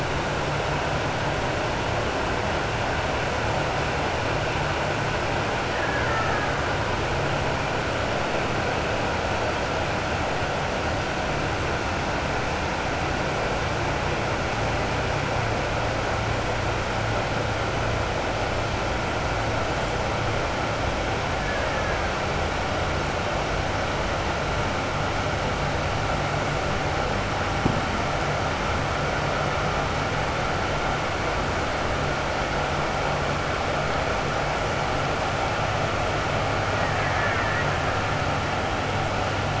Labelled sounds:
5.7	6.5	killer whale, Bigg's (transient), 0.87 to 2.1 kHz
21.4	22.0	killer whale, Bigg's (transient), 1.1 to 2.1 kHz
36.8	37.7	killer whale, Bigg's (transient), 0.98 to 2.4 kHz

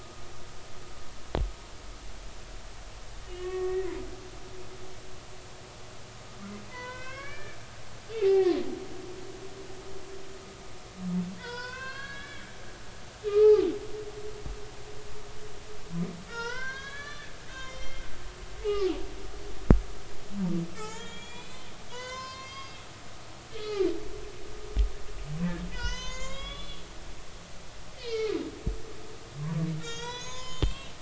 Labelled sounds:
3.3	3.9	humpback whale, 1.1 to 2.7 kHz
6.7	7.6	humpback whale, 0.93 to 4.1 kHz
8.1	8.6	humpback whale, 1.8 to 2.8 kHz
11.4	12.7	humpback whale, 0.90 to 5.6 kHz
13.3	13.7	humpback whale, 0.80 to 2.6 kHz
16.3	18.0	humpback whale, 0.86 to 6.9 kHz
20.8	22.9	humpback whale, 0.80 to 7.3 kHz
23.5	23.9	humpback whale, 1.1 to 4.7 kHz
25.7	26.8	humpback whale, 0.90 to 7.2 kHz
28.0	28.4	humpback whale, 1.2 to 2.6 kHz
29.8	30.9	humpback whale, 0.90 to 7.6 kHz

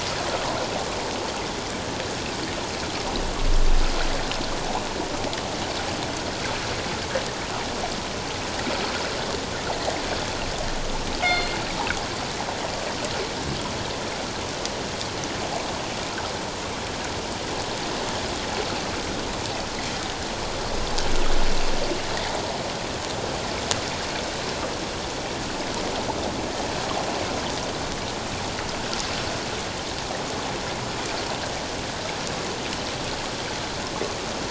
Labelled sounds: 0.3	0.6	water noise, 0.91 to 1.4 kHz
11.2	11.5	killer whale, northern resident, G clan, call N24ii, 2.0 to 4.3 kHz

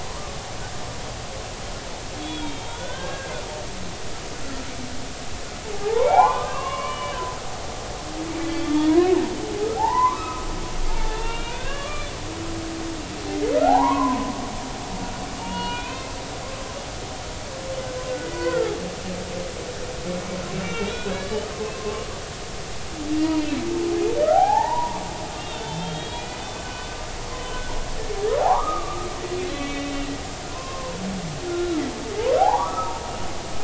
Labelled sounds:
2.2	3.3	humpback whale, 0.86 to 3.6 kHz
4.4	4.7	humpback whale, 1.3 to 1.5 kHz
5.7	7.2	humpback whale, 0.80 to 3.0 kHz
8.6	10.5	humpback whale, 0.80 to 3.5 kHz
10.9	12.1	humpback whale, 0.83 to 3.9 kHz
13.3	14.3	humpback whale, 0.80 to 2.2 kHz
15.4	16.1	humpback whale, 0.86 to 4.4 kHz
18.3	18.8	humpback whale, 1.2 to 1.6 kHz
20.6	22.0	humpback whale, 1.0 to 4.0 kHz
23.2	23.6	humpback whale, 2.6 to 2.9 kHz
24.2	25.0	humpback whale, 0.80 to 2.0 kHz
25.4	27.6	humpback whale, 1.4 to 3.9 kHz
28.4	29.9	humpback whale, 0.80 to 3.2 kHz
30.5	31.8	humpback whale, 0.96 to 3.9 kHz
32.4	33.0	humpback whale, 0.80 to 1.4 kHz

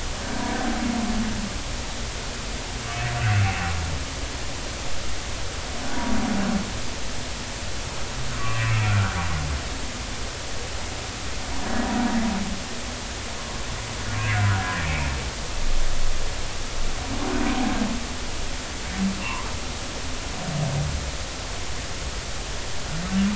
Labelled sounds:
8.4	8.8	humpback whale, 1.0 to 2.8 kHz
11.6	11.9	humpback whale, 1.6 to 1.8 kHz
14.8	15.1	humpback whale, 2.2 to 2.7 kHz
19.2	19.5	humpback whale, 0.86 to 1.2 kHz

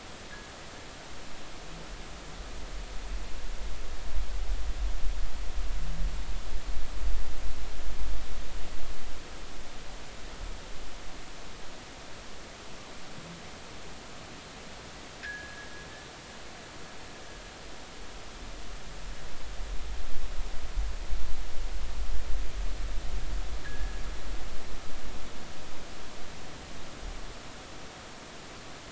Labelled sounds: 15.2	15.7	fishing gear, 1.5 to 1.8 kHz
23.6	24.0	fishing gear, 1.6 to 1.9 kHz

